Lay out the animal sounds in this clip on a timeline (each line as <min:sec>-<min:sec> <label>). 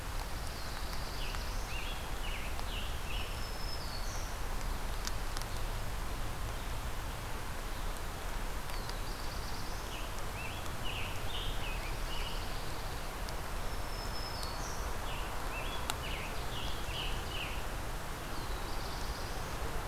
0:00.0-0:01.6 Pine Warbler (Setophaga pinus)
0:00.2-0:02.1 Black-throated Blue Warbler (Setophaga caerulescens)
0:01.0-0:03.8 Scarlet Tanager (Piranga olivacea)
0:03.0-0:04.5 Black-throated Green Warbler (Setophaga virens)
0:08.4-0:10.1 Black-throated Blue Warbler (Setophaga caerulescens)
0:09.6-0:12.5 Scarlet Tanager (Piranga olivacea)
0:11.5-0:13.4 Pine Warbler (Setophaga pinus)
0:13.3-0:15.3 Black-throated Green Warbler (Setophaga virens)
0:14.9-0:18.0 Scarlet Tanager (Piranga olivacea)
0:15.5-0:17.5 Ovenbird (Seiurus aurocapilla)
0:17.9-0:19.9 Black-throated Blue Warbler (Setophaga caerulescens)